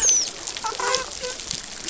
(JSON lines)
{"label": "biophony, dolphin", "recorder": "SoundTrap 500"}